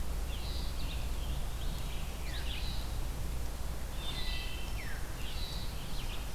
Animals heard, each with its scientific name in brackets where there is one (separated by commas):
Wood Thrush (Hylocichla mustelina), Veery (Catharus fuscescens), Red-eyed Vireo (Vireo olivaceus)